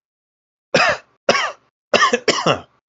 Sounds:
Cough